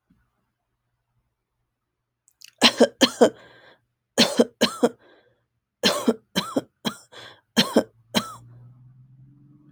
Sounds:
Cough